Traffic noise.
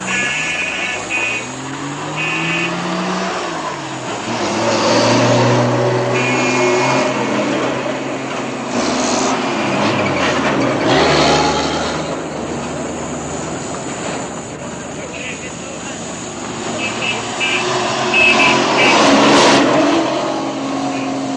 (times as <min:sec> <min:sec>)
0:12.5 0:14.9